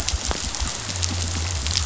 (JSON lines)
{"label": "biophony", "recorder": "SoundTrap 500"}